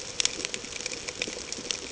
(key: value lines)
label: ambient
recorder: HydroMoth